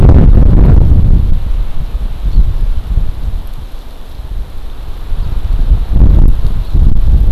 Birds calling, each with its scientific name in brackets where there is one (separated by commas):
Hawaii Amakihi (Chlorodrepanis virens)